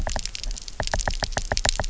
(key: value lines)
label: biophony, knock
recorder: SoundTrap 300